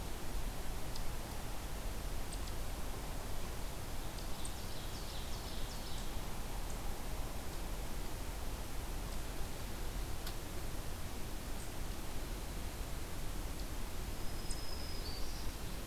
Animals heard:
Ovenbird (Seiurus aurocapilla), Black-throated Green Warbler (Setophaga virens)

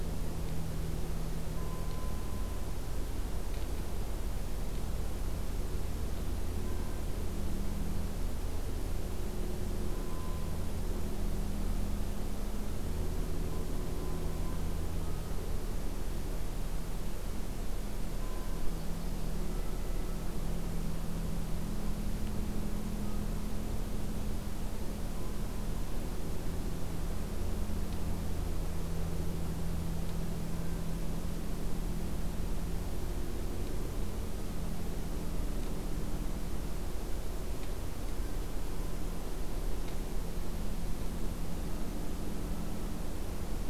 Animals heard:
Yellow-rumped Warbler (Setophaga coronata)

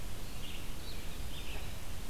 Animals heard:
Blue-headed Vireo (Vireo solitarius), Red-eyed Vireo (Vireo olivaceus)

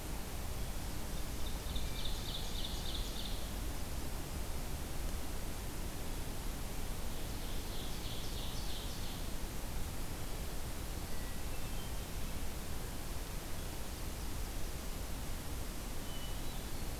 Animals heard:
Ovenbird (Seiurus aurocapilla), Hermit Thrush (Catharus guttatus), Eastern Wood-Pewee (Contopus virens)

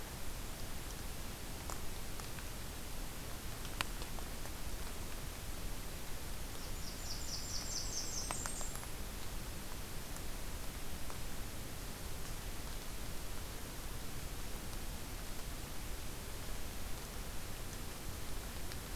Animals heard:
Blackburnian Warbler (Setophaga fusca)

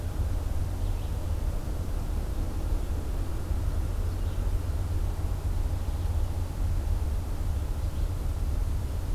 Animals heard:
Red-eyed Vireo (Vireo olivaceus)

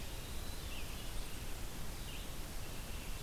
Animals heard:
Red-eyed Vireo (Vireo olivaceus), Hermit Thrush (Catharus guttatus)

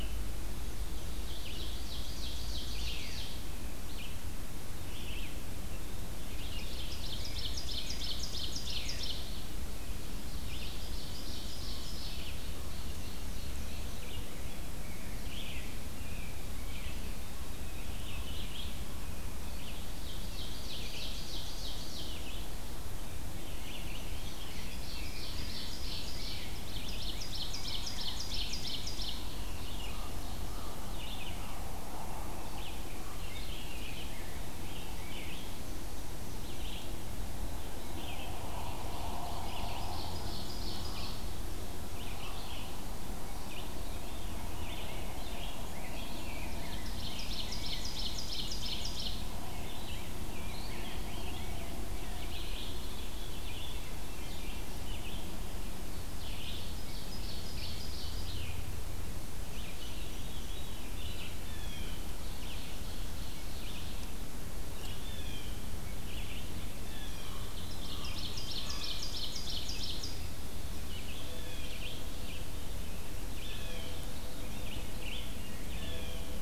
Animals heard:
Red-eyed Vireo (Vireo olivaceus), Chestnut-sided Warbler (Setophaga pensylvanica), Veery (Catharus fuscescens), Blue Jay (Cyanocitta cristata), Ovenbird (Seiurus aurocapilla), Common Raven (Corvus corax), Rose-breasted Grosbeak (Pheucticus ludovicianus)

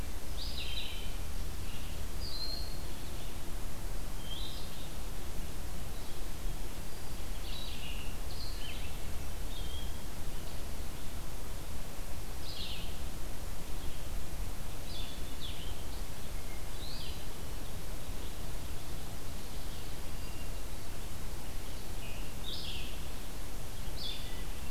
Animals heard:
Broad-winged Hawk (Buteo platypterus), Red-eyed Vireo (Vireo olivaceus)

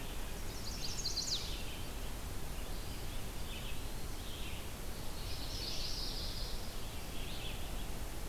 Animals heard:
Eastern Wood-Pewee (Contopus virens), Chestnut-sided Warbler (Setophaga pensylvanica), Red-eyed Vireo (Vireo olivaceus), Yellow-rumped Warbler (Setophaga coronata)

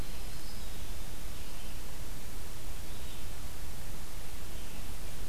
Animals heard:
Red-eyed Vireo (Vireo olivaceus), Black-throated Green Warbler (Setophaga virens)

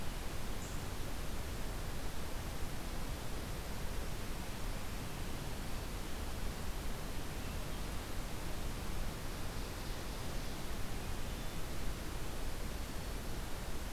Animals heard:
Ovenbird (Seiurus aurocapilla), Brown Creeper (Certhia americana)

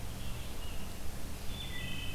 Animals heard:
Red-eyed Vireo (Vireo olivaceus), Wood Thrush (Hylocichla mustelina)

